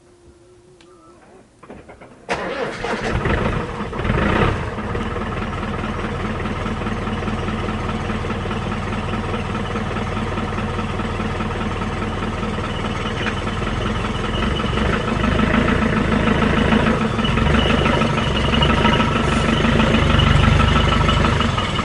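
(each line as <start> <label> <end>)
0.8 A big car engine starts and hums. 21.8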